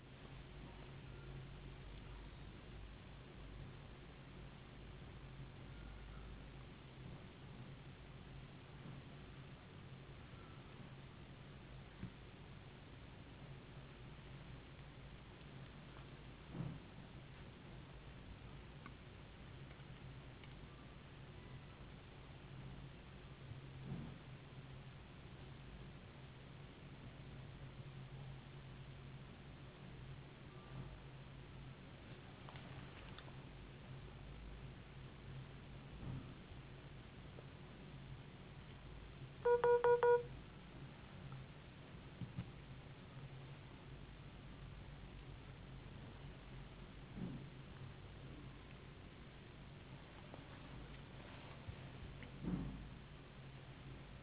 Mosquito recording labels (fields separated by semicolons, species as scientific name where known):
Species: no mosquito; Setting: insect culture